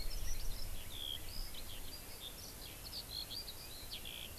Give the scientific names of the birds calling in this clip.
Alauda arvensis